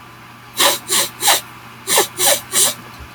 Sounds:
Sniff